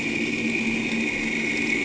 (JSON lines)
{"label": "anthrophony, boat engine", "recorder": "HydroMoth"}